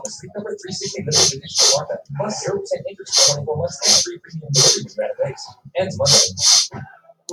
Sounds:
Sniff